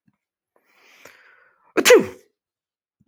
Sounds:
Sneeze